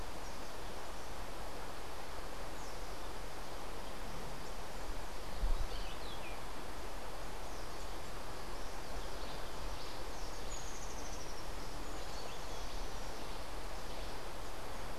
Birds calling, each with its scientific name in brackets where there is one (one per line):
Rufous-tailed Hummingbird (Amazilia tzacatl)